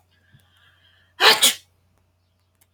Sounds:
Sneeze